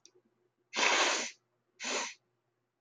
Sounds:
Sniff